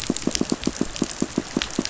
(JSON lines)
{"label": "biophony, pulse", "recorder": "SoundTrap 500"}